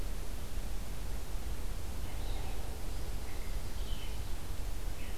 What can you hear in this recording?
Red-eyed Vireo